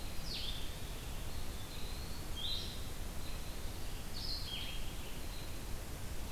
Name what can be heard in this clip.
Blue-headed Vireo, Eastern Wood-Pewee